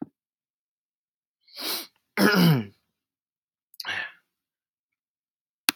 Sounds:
Throat clearing